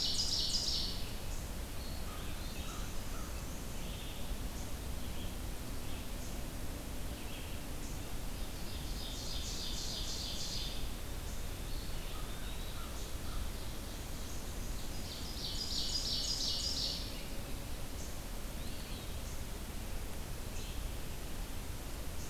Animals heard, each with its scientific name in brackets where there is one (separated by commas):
Eastern Wood-Pewee (Contopus virens), American Crow (Corvus brachyrhynchos), Ovenbird (Seiurus aurocapilla), Red-eyed Vireo (Vireo olivaceus)